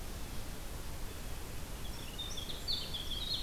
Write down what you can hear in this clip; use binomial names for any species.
Troglodytes hiemalis